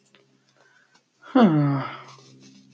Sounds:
Sigh